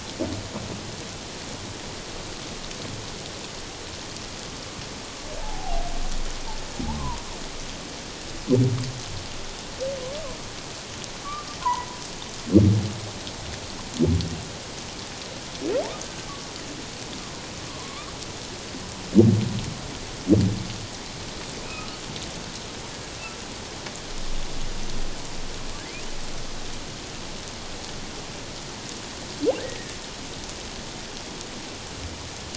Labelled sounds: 5.4	5.8	humpback whale, 0.78 to 0.94 kHz
11.6	11.9	humpback whale, 0.84 to 1.1 kHz
17.7	18.1	humpback whale, 0.97 to 1.3 kHz
21.6	22.0	humpback whale, 1.2 to 2.7 kHz
29.6	29.9	humpback whale, 1.7 to 2.0 kHz

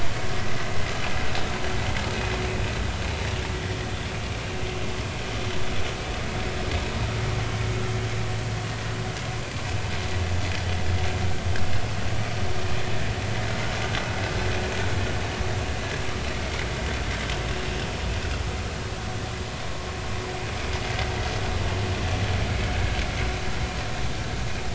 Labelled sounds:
22.5	22.7	vessel noise, 2.1 to 2.3 kHz

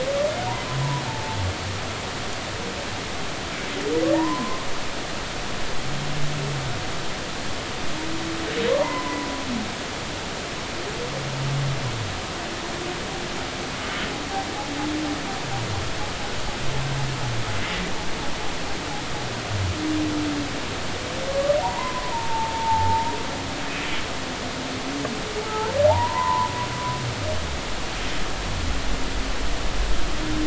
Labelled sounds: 1.1	1.4	humpback whale, 0.83 to 0.93 kHz
4.1	4.7	humpback whale, 0.83 to 1.1 kHz
8.8	9.3	humpback whale, 0.83 to 1.1 kHz
21.3	23.1	humpback whale, 0.80 to 1.2 kHz
25.4	26.5	humpback whale, 0.80 to 1.4 kHz

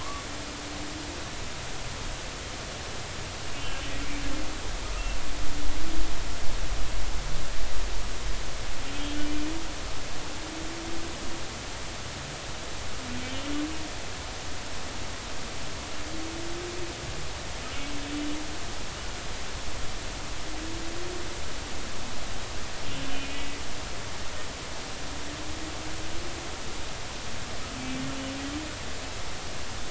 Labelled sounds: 0.0	0.3	humpback whale, 0.93 to 1.2 kHz
3.6	3.8	humpback whale, 2.7 to 2.8 kHz
23.1	23.6	humpback whale, 2.0 to 2.6 kHz

